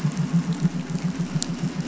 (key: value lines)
label: anthrophony, boat engine
recorder: SoundTrap 500